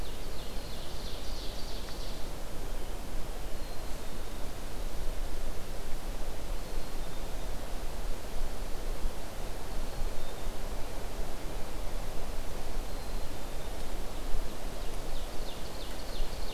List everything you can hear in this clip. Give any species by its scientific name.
Seiurus aurocapilla, Poecile atricapillus